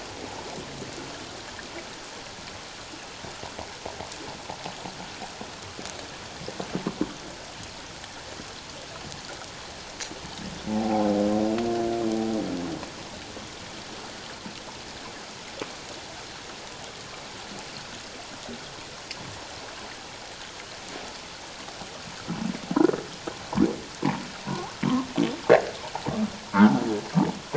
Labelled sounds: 10.7	11.1	humpback whale, 0.78 to 0.91 kHz

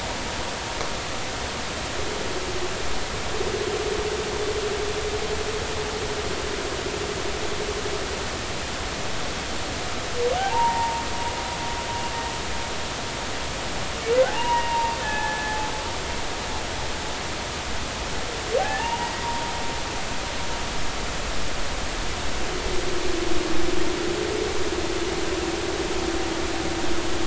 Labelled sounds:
10.4	11.0	humpback whale, 0.80 to 1.0 kHz
14.3	15.7	humpback whale, 0.80 to 2.9 kHz
18.6	19.5	humpback whale, 0.80 to 1.9 kHz

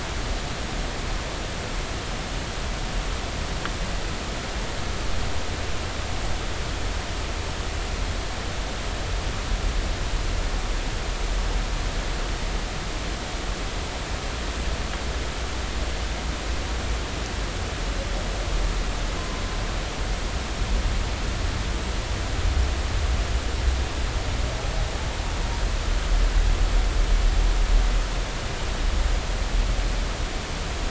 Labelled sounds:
19.2	19.4	humpback whale, 0.99 to 1.1 kHz

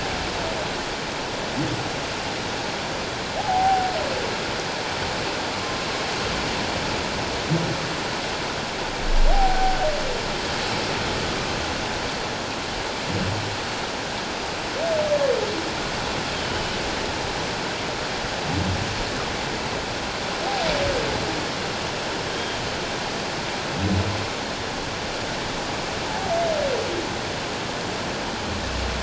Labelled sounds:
3.4	3.9	humpback whale, 0.78 to 0.91 kHz
9.3	9.8	humpback whale, 0.78 to 0.84 kHz
16.4	16.8	humpback whale, 2.9 to 3.2 kHz
26.1	26.3	humpback whale, 0.78 to 0.94 kHz

